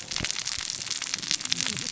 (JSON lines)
{"label": "biophony, cascading saw", "recorder": "SoundTrap 600 or HydroMoth"}